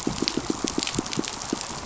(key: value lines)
label: biophony, pulse
recorder: SoundTrap 500